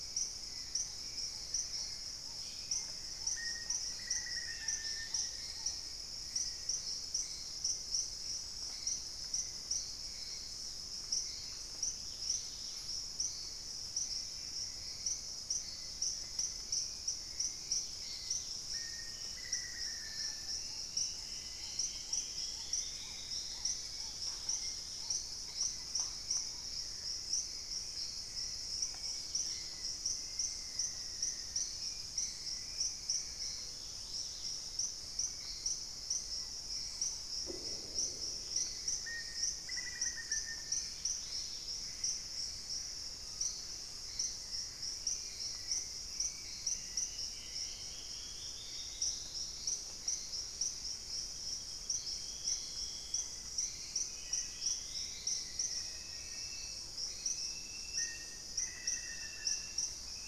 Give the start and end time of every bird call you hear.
0.0s-60.3s: Hauxwell's Thrush (Turdus hauxwelli)
0.9s-6.0s: Black-tailed Trogon (Trogon melanurus)
3.2s-5.3s: Black-faced Antthrush (Formicarius analis)
4.4s-5.5s: Dusky-capped Greenlet (Pachysylvia hypoxantha)
11.9s-12.9s: Dusky-capped Greenlet (Pachysylvia hypoxantha)
17.8s-18.6s: Dusky-capped Greenlet (Pachysylvia hypoxantha)
18.6s-20.7s: Black-faced Antthrush (Formicarius analis)
19.9s-26.6s: Black-tailed Trogon (Trogon melanurus)
20.0s-24.2s: Dusky-throated Antshrike (Thamnomanes ardesiacus)
24.2s-34.7s: Dusky-capped Greenlet (Pachysylvia hypoxantha)
29.4s-31.6s: Black-faced Antthrush (Formicarius analis)
38.9s-41.2s: Black-faced Antthrush (Formicarius analis)
40.7s-41.9s: Dusky-capped Greenlet (Pachysylvia hypoxantha)
40.9s-43.9s: Screaming Piha (Lipaugus vociferans)
46.1s-56.1s: Dusky-throated Antshrike (Thamnomanes ardesiacus)
54.2s-59.9s: Black-faced Antthrush (Formicarius analis)

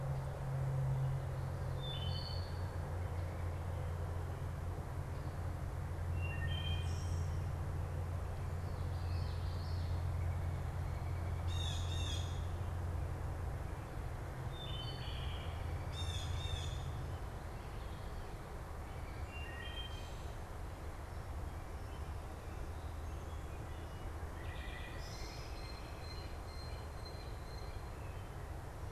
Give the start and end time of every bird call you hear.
1.8s-2.8s: Wood Thrush (Hylocichla mustelina)
6.0s-7.5s: Wood Thrush (Hylocichla mustelina)
8.8s-10.3s: Common Yellowthroat (Geothlypis trichas)
11.3s-12.6s: Blue Jay (Cyanocitta cristata)
14.3s-16.0s: Wood Thrush (Hylocichla mustelina)
15.9s-16.9s: Blue Jay (Cyanocitta cristata)
19.0s-20.5s: Wood Thrush (Hylocichla mustelina)
24.3s-25.7s: Wood Thrush (Hylocichla mustelina)
24.9s-28.1s: Blue Jay (Cyanocitta cristata)

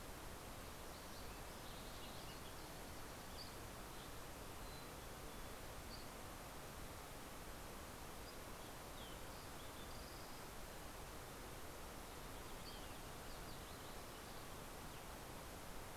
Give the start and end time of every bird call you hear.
0.1s-3.6s: Spotted Towhee (Pipilo maculatus)
2.7s-4.0s: Dusky Flycatcher (Empidonax oberholseri)
3.8s-5.9s: Mountain Chickadee (Poecile gambeli)
5.6s-6.6s: Dusky Flycatcher (Empidonax oberholseri)
8.0s-10.9s: Green-tailed Towhee (Pipilo chlorurus)

